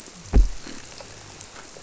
{"label": "biophony", "recorder": "SoundTrap 300"}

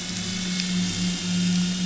{"label": "anthrophony, boat engine", "recorder": "SoundTrap 500"}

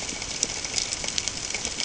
{"label": "ambient", "recorder": "HydroMoth"}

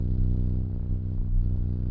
{"label": "anthrophony, boat engine", "recorder": "SoundTrap 300"}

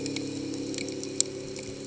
{"label": "anthrophony, boat engine", "recorder": "HydroMoth"}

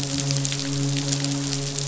{"label": "biophony, midshipman", "recorder": "SoundTrap 500"}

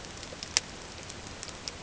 {"label": "ambient", "recorder": "HydroMoth"}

